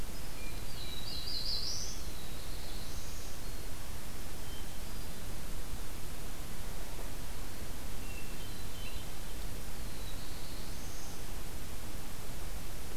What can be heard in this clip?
Hermit Thrush, Black-throated Blue Warbler